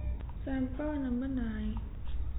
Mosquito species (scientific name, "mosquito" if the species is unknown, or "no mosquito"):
no mosquito